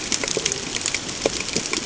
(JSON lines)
{"label": "ambient", "recorder": "HydroMoth"}